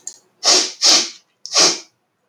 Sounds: Sniff